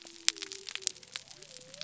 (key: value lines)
label: biophony
recorder: SoundTrap 300